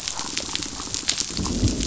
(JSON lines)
{"label": "biophony", "recorder": "SoundTrap 500"}